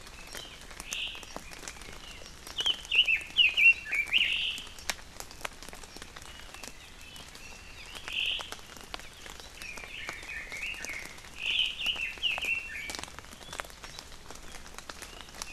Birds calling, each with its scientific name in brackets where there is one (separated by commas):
Red-billed Leiothrix (Leiothrix lutea), Omao (Myadestes obscurus)